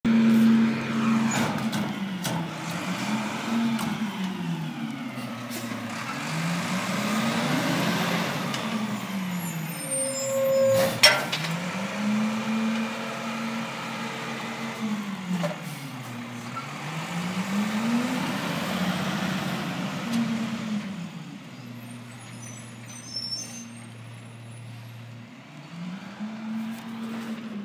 Does the vehicle get farther away?
yes